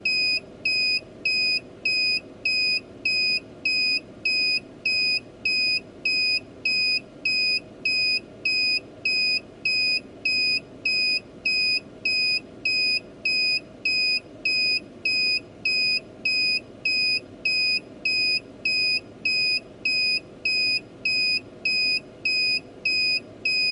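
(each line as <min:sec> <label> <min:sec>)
0:00.0 A vehicle is beeping repeatedly with short pauses. 0:23.7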